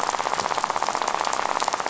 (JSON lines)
{"label": "biophony, rattle", "recorder": "SoundTrap 500"}